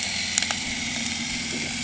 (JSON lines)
{"label": "anthrophony, boat engine", "recorder": "HydroMoth"}